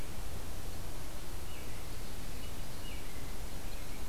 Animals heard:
American Robin (Turdus migratorius), Ovenbird (Seiurus aurocapilla)

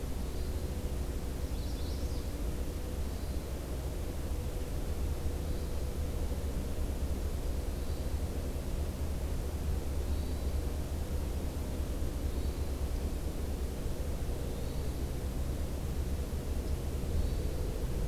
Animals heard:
Magnolia Warbler (Setophaga magnolia), Hermit Thrush (Catharus guttatus)

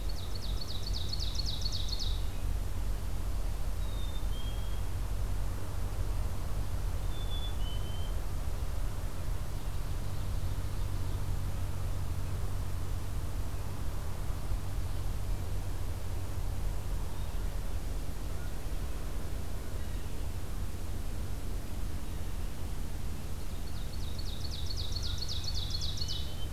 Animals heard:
Black-capped Chickadee (Poecile atricapillus), Ovenbird (Seiurus aurocapilla)

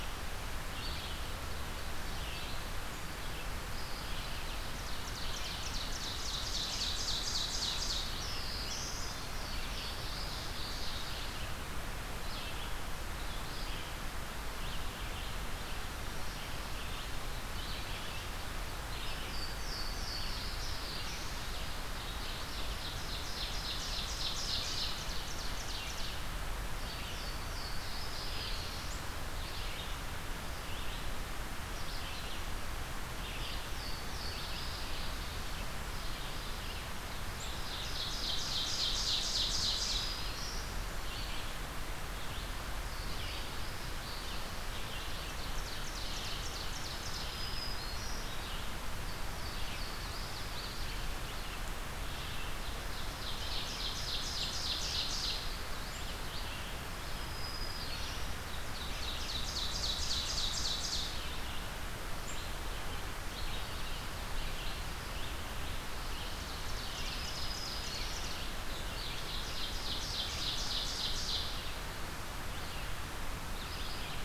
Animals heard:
Black-throated Green Warbler (Setophaga virens), Louisiana Waterthrush (Parkesia motacilla), Red-eyed Vireo (Vireo olivaceus), Ovenbird (Seiurus aurocapilla)

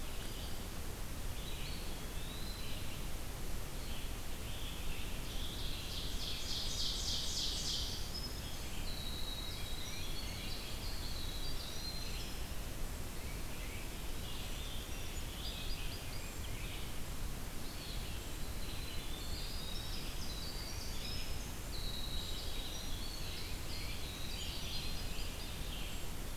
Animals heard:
Ovenbird (Seiurus aurocapilla), Song Sparrow (Melospiza melodia), Eastern Wood-Pewee (Contopus virens), Red-eyed Vireo (Vireo olivaceus), Winter Wren (Troglodytes hiemalis), Scarlet Tanager (Piranga olivacea), Tufted Titmouse (Baeolophus bicolor)

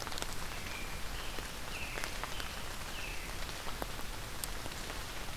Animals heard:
American Robin (Turdus migratorius)

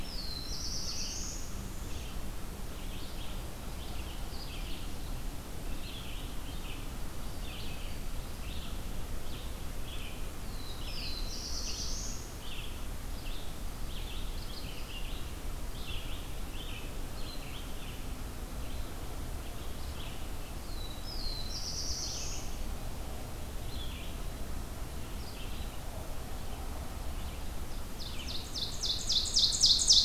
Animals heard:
Black-throated Green Warbler (Setophaga virens), Red-eyed Vireo (Vireo olivaceus), Northern Parula (Setophaga americana), Ovenbird (Seiurus aurocapilla), Black-throated Blue Warbler (Setophaga caerulescens)

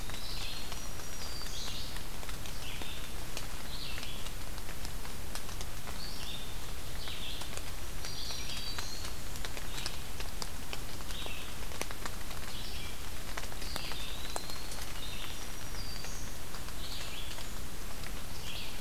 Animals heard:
Eastern Wood-Pewee (Contopus virens), Red-eyed Vireo (Vireo olivaceus), Black-throated Green Warbler (Setophaga virens)

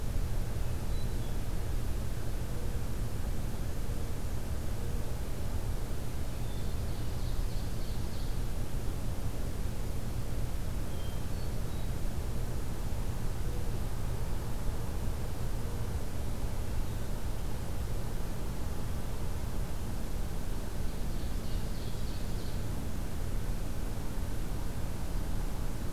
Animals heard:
Hermit Thrush (Catharus guttatus), Ovenbird (Seiurus aurocapilla)

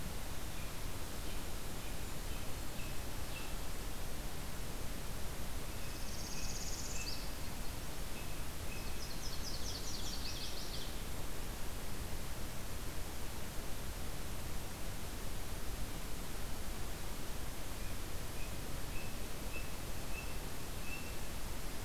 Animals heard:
Nashville Warbler (Leiothlypis ruficapilla), American Robin (Turdus migratorius), Northern Parula (Setophaga americana)

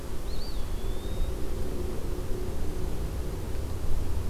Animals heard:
Eastern Wood-Pewee (Contopus virens)

